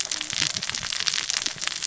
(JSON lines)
{"label": "biophony, cascading saw", "recorder": "SoundTrap 600 or HydroMoth"}